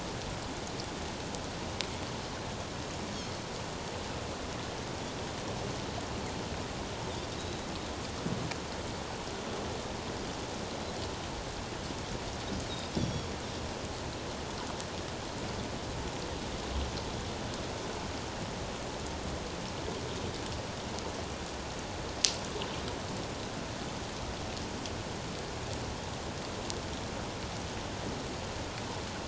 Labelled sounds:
7.3	7.6	Pacific white-sided dolphin, 3.6 to 3.9 kHz
13.0	13.3	Pacific white-sided dolphin, 3.2 to 5.8 kHz

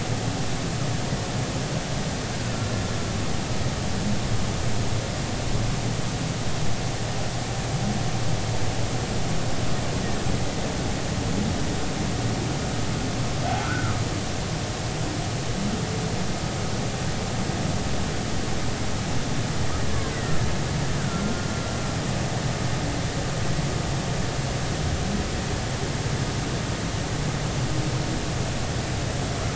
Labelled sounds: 13.6	14.0	humpback whale, 1.2 to 1.6 kHz
20.1	20.4	killer whale, Bigg's (transient), 1.8 to 2.0 kHz
21.0	21.5	killer whale, Bigg's (transient), 1.3 to 1.6 kHz

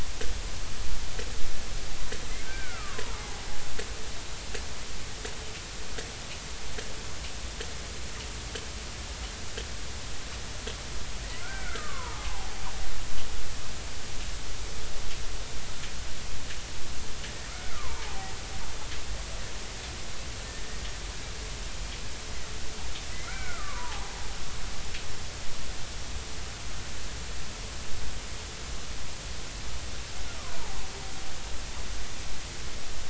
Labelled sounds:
2.4	3.4	killer whale, Bigg's (transient), 0.80 to 1.6 kHz
11.4	12.5	killer whale, Bigg's (transient), 0.80 to 2.4 kHz
17.7	18.4	killer whale, Bigg's (transient), 0.80 to 1.4 kHz
23.1	24.1	killer whale, Bigg's (transient), 0.80 to 2.4 kHz
30.4	30.8	killer whale, Bigg's (transient), 0.80 to 1.2 kHz

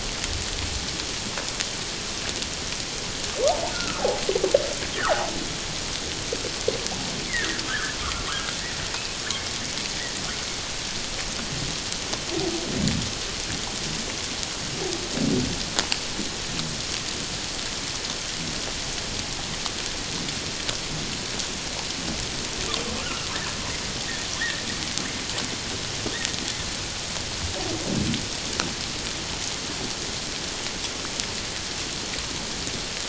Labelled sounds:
3.7	4.1	humpback whale, 1.0 to 1.5 kHz
5.0	5.3	humpback whale, 0.78 to 2.0 kHz
7.3	8.0	humpback whale, 1.4 to 2.4 kHz
23.0	23.3	humpback whale, 2.6 to 3.0 kHz
24.4	24.6	humpback whale, 1.6 to 2.0 kHz

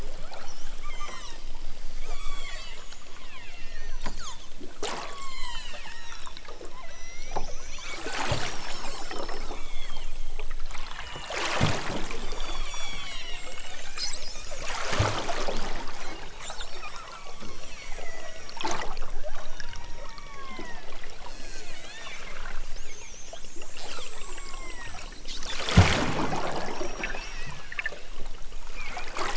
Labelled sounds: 0.2	1.5	killer whale, southern Alaska resident, 0.46 to 8.0 kHz
2.0	2.8	killer whale, southern Alaska resident, 0.51 to 8.0 kHz
3.1	3.5	killer whale, southern Alaska resident, 0.78 to 4.0 kHz
4.1	4.5	killer whale, southern Alaska resident, 0.69 to 6.4 kHz
4.9	8.0	killer whale, southern Alaska resident, 0.51 to 8.0 kHz
8.5	10.2	killer whale, southern Alaska resident, 0.92 to 5.8 kHz
10.8	11.4	killer whale, southern Alaska resident, 1.1 to 3.6 kHz
12.1	14.7	killer whale, southern Alaska resident, 0.37 to 7.3 kHz
16.6	18.6	killer whale, southern Alaska resident, 0.23 to 6.0 kHz
19.3	22.3	killer whale, southern Alaska resident, 0.55 to 5.2 kHz
23.9	25.1	killer whale, southern Alaska resident, 0.32 to 6.1 kHz
26.2	27.7	killer whale, southern Alaska resident, 1.0 to 6.0 kHz

